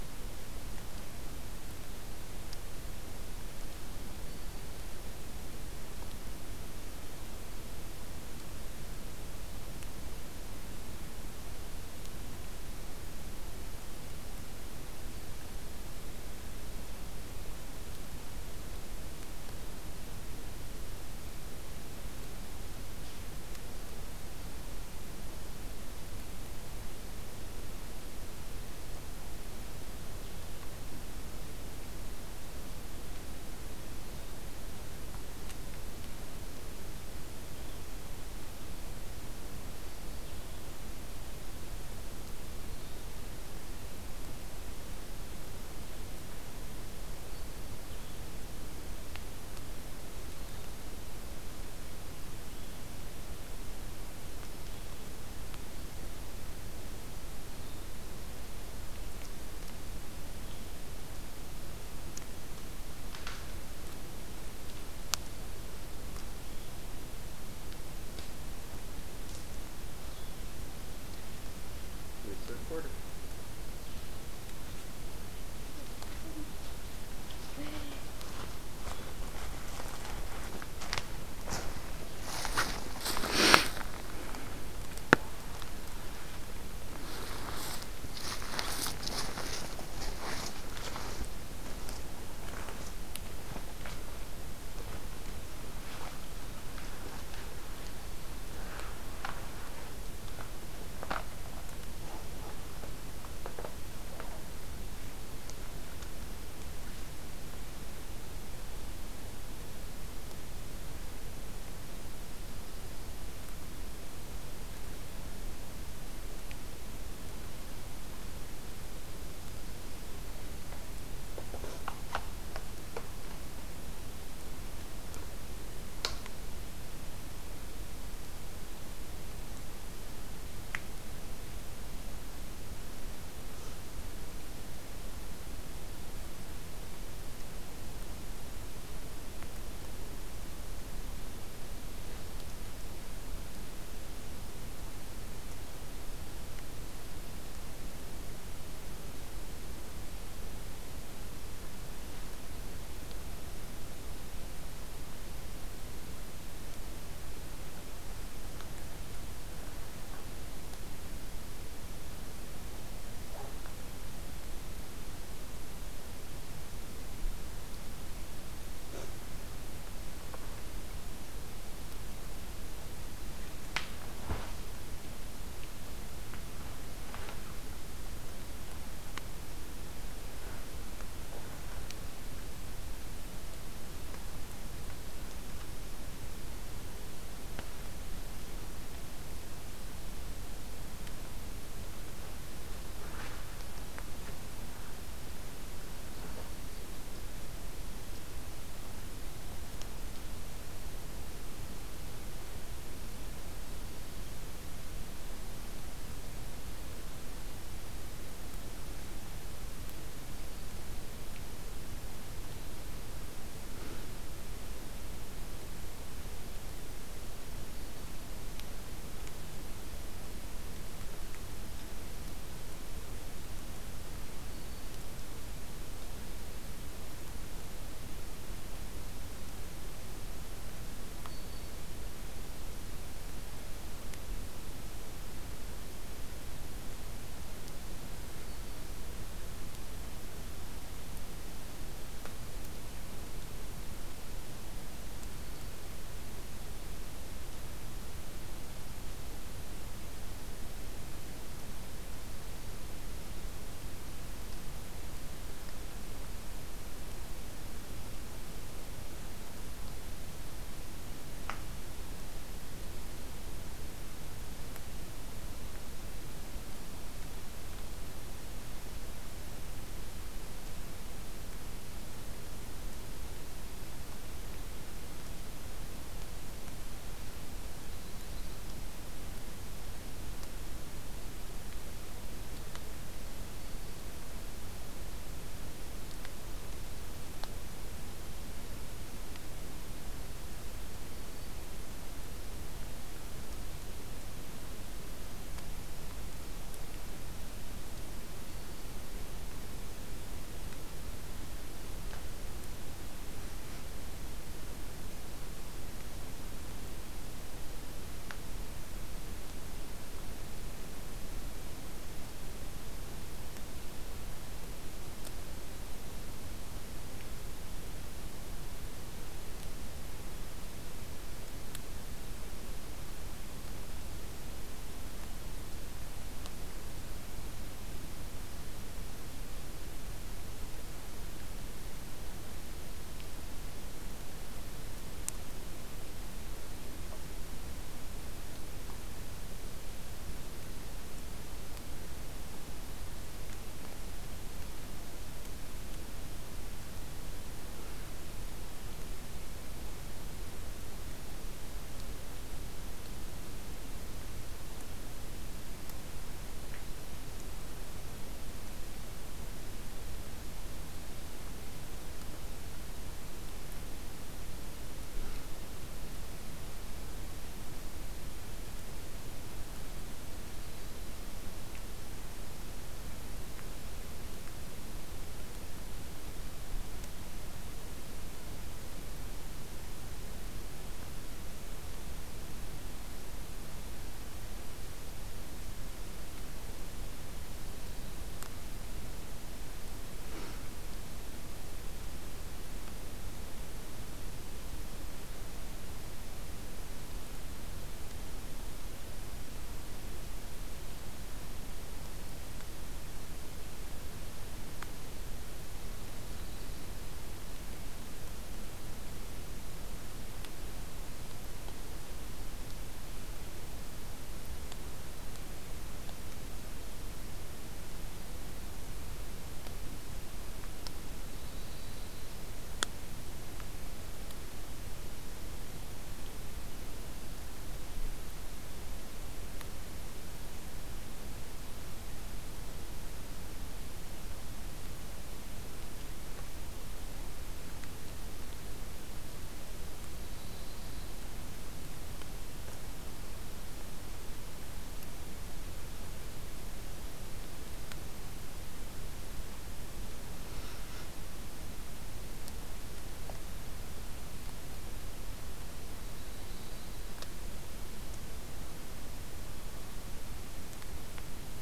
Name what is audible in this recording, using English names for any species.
Black-throated Green Warbler, Blue-headed Vireo, Yellow-rumped Warbler